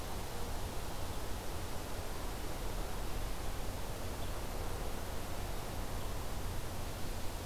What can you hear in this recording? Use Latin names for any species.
Vireo olivaceus